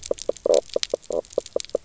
{"label": "biophony, knock croak", "recorder": "SoundTrap 300"}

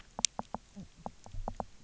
{"label": "biophony, knock croak", "recorder": "SoundTrap 300"}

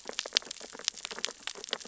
{"label": "biophony, sea urchins (Echinidae)", "recorder": "SoundTrap 600 or HydroMoth"}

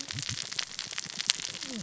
{"label": "biophony, cascading saw", "recorder": "SoundTrap 600 or HydroMoth"}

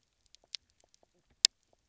{"label": "biophony, knock croak", "recorder": "SoundTrap 300"}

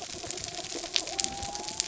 {"label": "biophony", "recorder": "SoundTrap 300"}
{"label": "anthrophony, mechanical", "recorder": "SoundTrap 300"}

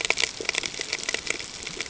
{"label": "ambient", "recorder": "HydroMoth"}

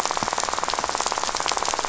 {"label": "biophony, rattle", "recorder": "SoundTrap 500"}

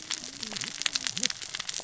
{"label": "biophony, cascading saw", "recorder": "SoundTrap 600 or HydroMoth"}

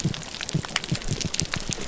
{"label": "biophony", "recorder": "SoundTrap 300"}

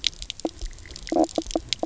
{"label": "biophony, knock croak", "recorder": "SoundTrap 300"}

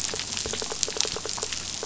{"label": "biophony", "recorder": "SoundTrap 500"}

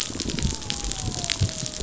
{"label": "biophony", "recorder": "SoundTrap 500"}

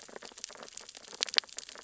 {"label": "biophony, sea urchins (Echinidae)", "recorder": "SoundTrap 600 or HydroMoth"}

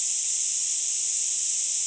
{"label": "ambient", "recorder": "HydroMoth"}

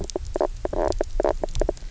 {"label": "biophony, knock croak", "recorder": "SoundTrap 300"}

